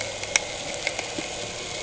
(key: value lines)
label: anthrophony, boat engine
recorder: HydroMoth